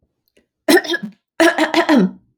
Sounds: Throat clearing